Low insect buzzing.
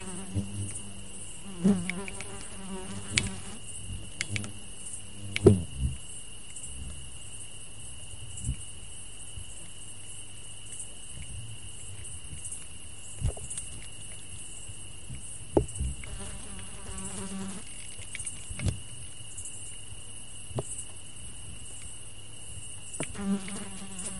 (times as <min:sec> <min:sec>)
0:00.0 0:04.5, 0:15.9 0:18.0, 0:23.1 0:24.2